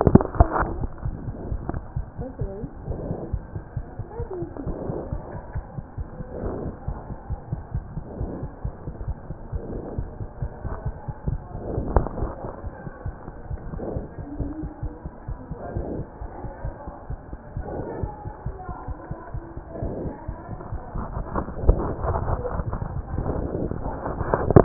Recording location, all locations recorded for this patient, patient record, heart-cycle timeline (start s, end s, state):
aortic valve (AV)
aortic valve (AV)+mitral valve (MV)
#Age: Infant
#Sex: Male
#Height: 64.0 cm
#Weight: 6.12 kg
#Pregnancy status: False
#Murmur: Absent
#Murmur locations: nan
#Most audible location: nan
#Systolic murmur timing: nan
#Systolic murmur shape: nan
#Systolic murmur grading: nan
#Systolic murmur pitch: nan
#Systolic murmur quality: nan
#Diastolic murmur timing: nan
#Diastolic murmur shape: nan
#Diastolic murmur grading: nan
#Diastolic murmur pitch: nan
#Diastolic murmur quality: nan
#Outcome: Abnormal
#Campaign: 2015 screening campaign
0.00	3.53	unannotated
3.53	3.61	S1
3.61	3.75	systole
3.75	3.84	S2
3.84	3.97	diastole
3.97	4.06	S1
4.06	4.18	systole
4.18	4.27	S2
4.27	4.40	diastole
4.40	4.48	S1
4.48	4.65	systole
4.65	4.74	S2
4.74	4.87	diastole
4.87	4.95	S1
4.95	5.11	systole
5.11	5.20	S2
5.20	5.34	diastole
5.34	5.41	S1
5.41	5.54	systole
5.54	5.63	S2
5.63	5.76	diastole
5.76	5.84	S1
5.84	5.97	systole
5.97	6.05	S2
6.05	6.18	diastole
6.18	6.24	S1
6.24	6.41	systole
6.41	6.51	S2
6.51	6.64	diastole
6.64	6.72	S1
6.72	6.86	systole
6.86	6.96	S2
6.96	7.08	diastole
7.08	7.16	S1
7.16	7.27	systole
7.27	7.37	S2
7.37	7.50	diastole
7.50	7.59	S1
7.59	7.73	systole
7.73	7.82	S2
7.82	7.95	diastole
7.95	8.02	S1
8.02	8.18	systole
8.18	8.28	S2
8.28	8.41	diastole
8.41	8.48	S1
8.48	8.63	systole
8.63	8.71	S2
8.71	8.86	diastole
8.86	8.92	S1
8.92	9.06	systole
9.06	9.16	S2
9.16	9.28	diastole
9.28	9.34	S1
9.34	9.51	systole
9.51	9.60	S2
9.60	9.73	diastole
9.73	9.84	S1
9.84	9.96	systole
9.96	10.07	S2
10.07	10.19	diastole
10.19	10.26	S1
10.26	10.40	systole
10.40	10.50	S2
10.50	10.63	diastole
10.63	10.71	S1
10.71	10.84	systole
10.84	10.92	S2
10.92	11.07	diastole
11.07	11.13	S1
11.13	24.64	unannotated